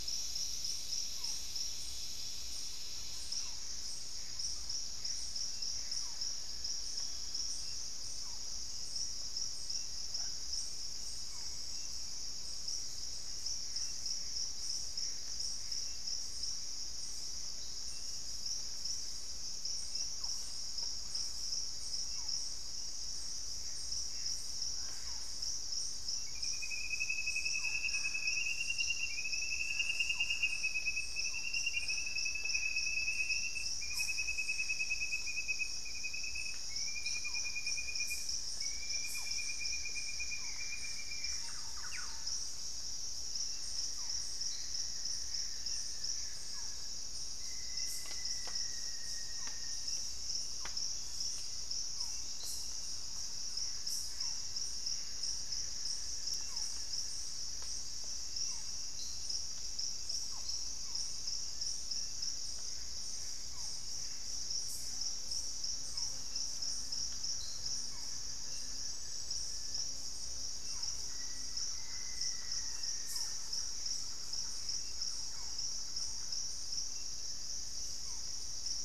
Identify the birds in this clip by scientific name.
Micrastur ruficollis, Cercomacra cinerascens, unidentified bird, Thamnophilus schistaceus, Amazona farinosa, Turdus hauxwelli, Xiphorhynchus guttatus, Campylorhynchus turdinus, Formicarius analis, Psarocolius angustifrons